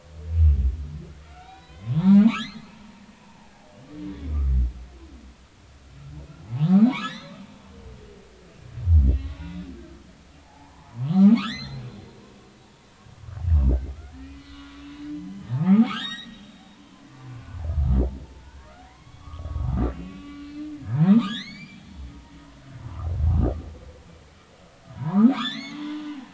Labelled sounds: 1.2	2.8	humpback whale, 0.90 to 4.5 kHz
3.2	3.5	humpback whale, 0.80 to 1.1 kHz
4.1	4.4	humpback whale, 3.3 to 3.6 kHz
6.6	7.4	humpback whale, 0.90 to 4.2 kHz
9.4	9.7	humpback whale, 2.5 to 3.6 kHz
10.4	11.8	humpback whale, 0.80 to 6.3 kHz
14.3	14.7	humpback whale, 1.4 to 4.4 kHz
15.3	17.0	humpback whale, 0.80 to 7.7 kHz
18.4	21.8	humpback whale, 0.83 to 7.2 kHz
22.8	23.1	humpback whale, 0.90 to 1.4 kHz
25.0	26.2	humpback whale, 0.86 to 6.7 kHz

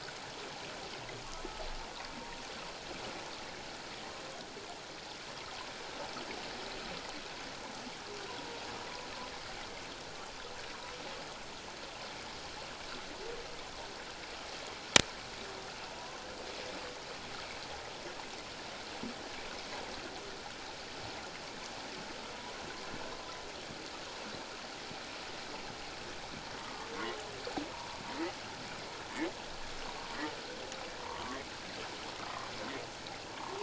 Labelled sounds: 15.9	16.2	humpback whale, 0.91 to 1.1 kHz
22.3	22.6	humpback whale, 0.94 to 1.1 kHz
31.0	31.4	humpback whale, 0.88 to 1.2 kHz
33.3	33.6	humpback whale, 0.81 to 1.3 kHz

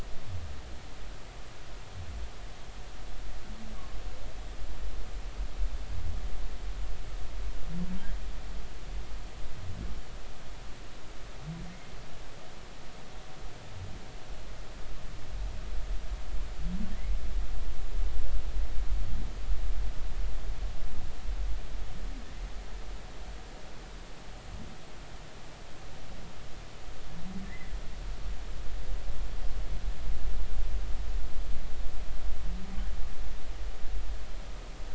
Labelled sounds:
27.4	27.7	humpback whale, 1.7 to 2.1 kHz

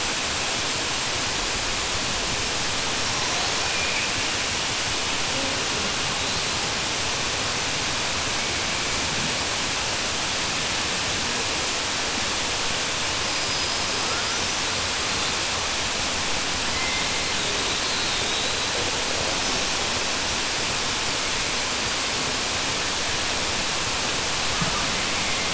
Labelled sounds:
13.4	13.8	killer whale, southern resident, 4.5 to 5.2 kHz

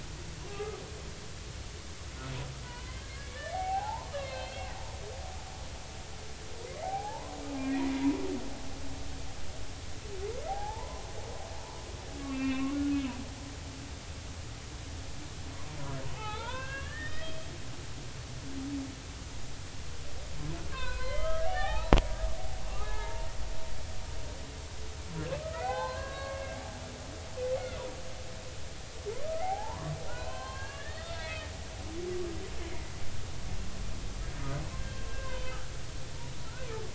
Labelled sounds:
0.5	0.8	humpback whale, 1.1 to 1.3 kHz
2.6	4.7	humpback whale, 0.80 to 4.4 kHz
6.8	8.2	humpback whale, 0.80 to 2.5 kHz
10.5	11.1	humpback whale, 0.80 to 1.1 kHz
12.3	12.8	humpback whale, 1.3 to 2.8 kHz
13.2	13.8	humpback whale, 0.99 to 2.3 kHz
16.1	17.5	humpback whale, 0.80 to 5.2 kHz
20.7	21.9	humpback whale, 0.80 to 4.3 kHz
22.8	23.3	humpback whale, 0.83 to 2.2 kHz
25.4	26.6	humpback whale, 0.80 to 4.2 kHz
27.5	27.8	humpback whale, 2.0 to 2.2 kHz
29.4	31.5	humpback whale, 0.80 to 3.8 kHz
34.8	35.6	humpback whale, 0.90 to 3.2 kHz

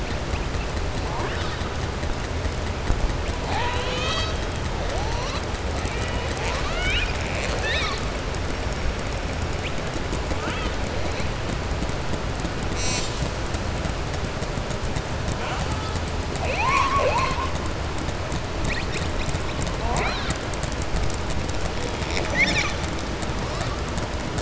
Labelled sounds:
6.2	7.2	killer whale, southern resident, 0.70 to 7.8 kHz
16.3	17.5	killer whale, southern resident, 0.52 to 7.5 kHz

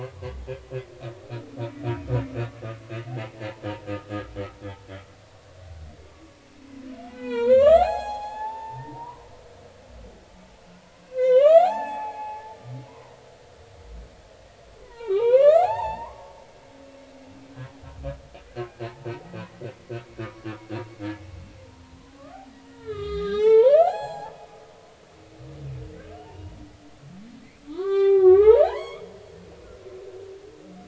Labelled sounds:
3.2	3.5	humpback whale, 0.80 to 0.90 kHz
5.2	5.7	humpback whale, 1.1 to 1.2 kHz
6.1	9.3	humpback whale, 0.80 to 7.7 kHz
11.0	12.6	humpback whale, 0.80 to 8.0 kHz
12.9	13.1	humpback whale, 0.93 to 1.1 kHz
14.8	16.3	humpback whale, 0.80 to 4.6 kHz
18.5	18.8	humpback whale, 1.4 to 1.7 kHz
20.2	20.5	humpback whale, 1.1 to 1.3 kHz
22.7	24.3	humpback whale, 0.80 to 7.7 kHz
24.7	25.0	humpback whale, 0.96 to 1.2 kHz
26.2	26.5	humpback whale, 0.83 to 0.99 kHz
27.7	29.0	humpback whale, 0.80 to 6.0 kHz

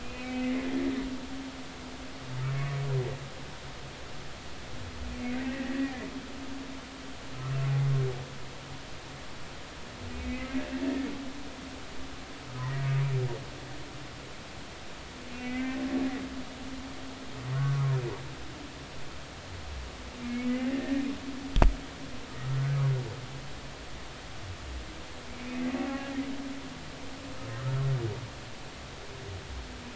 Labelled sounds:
0.0	0.7	humpback whale, 2.0 to 2.6 kHz
2.5	2.9	humpback whale, 1.1 to 2.3 kHz
5.4	5.9	humpback whale, 1.8 to 2.0 kHz
10.2	10.6	humpback whale, 2.0 to 2.4 kHz
12.6	12.9	humpback whale, 1.8 to 2.0 kHz
15.3	15.8	humpback whale, 1.5 to 2.7 kHz
17.5	17.8	humpback whale, 1.0 to 1.3 kHz
20.2	21.1	humpback whale, 1.8 to 2.3 kHz
22.5	22.8	humpback whale, 1.4 to 1.7 kHz
25.5	26.1	humpback whale, 0.80 to 2.1 kHz

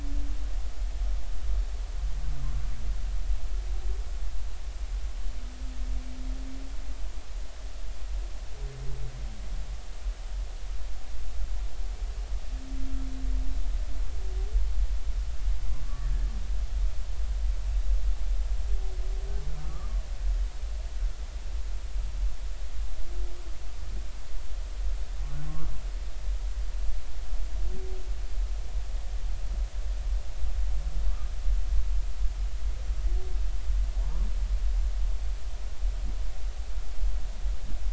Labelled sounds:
19.6	19.9	humpback whale, 1.1 to 1.3 kHz
25.5	25.7	humpback whale, 0.93 to 1.2 kHz
34.0	34.3	humpback whale, 0.90 to 1.2 kHz

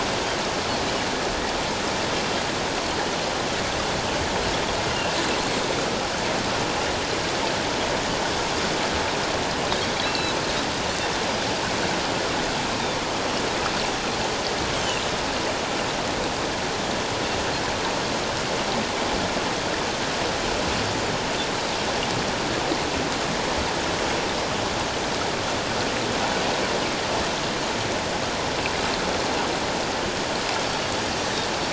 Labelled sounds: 10.0	10.3	Pacific white-sided dolphin, 2.6 to 2.8 kHz
14.7	15.0	Pacific white-sided dolphin, 2.6 to 3.3 kHz
30.7	30.9	Pacific white-sided dolphin, 4.4 to 4.5 kHz

